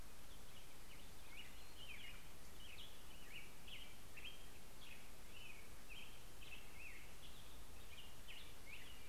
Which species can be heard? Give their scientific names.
Pheucticus melanocephalus